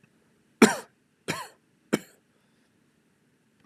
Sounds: Cough